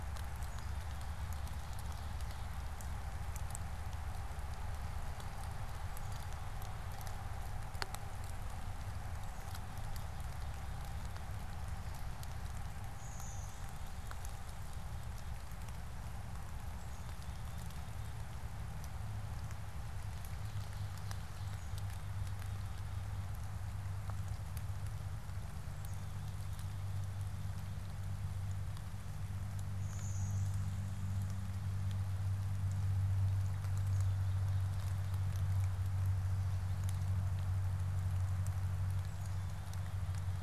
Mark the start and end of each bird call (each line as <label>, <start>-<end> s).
Blue-winged Warbler (Vermivora cyanoptera), 12.7-14.7 s
Blue-winged Warbler (Vermivora cyanoptera), 29.6-31.5 s